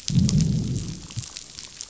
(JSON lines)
{"label": "biophony, growl", "recorder": "SoundTrap 500"}